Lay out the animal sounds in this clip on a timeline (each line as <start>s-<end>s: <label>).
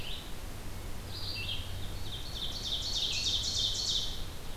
0.0s-4.6s: Red-eyed Vireo (Vireo olivaceus)
2.0s-4.1s: Ovenbird (Seiurus aurocapilla)